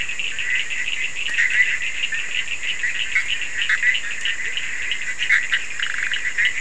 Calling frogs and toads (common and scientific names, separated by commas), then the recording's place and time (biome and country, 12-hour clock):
Bischoff's tree frog (Boana bischoffi), Cochran's lime tree frog (Sphaenorhynchus surdus)
Atlantic Forest, Brazil, 4:30am